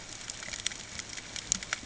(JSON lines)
{"label": "ambient", "recorder": "HydroMoth"}